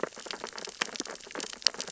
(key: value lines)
label: biophony, sea urchins (Echinidae)
recorder: SoundTrap 600 or HydroMoth